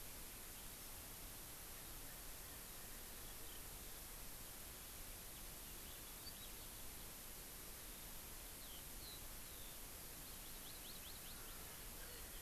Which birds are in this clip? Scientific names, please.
Haemorhous mexicanus, Chlorodrepanis virens